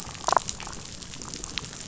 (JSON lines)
{"label": "biophony, damselfish", "recorder": "SoundTrap 500"}